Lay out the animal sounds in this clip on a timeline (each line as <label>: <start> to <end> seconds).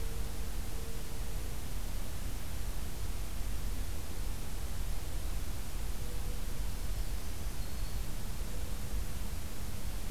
Black-throated Green Warbler (Setophaga virens): 6.5 to 8.1 seconds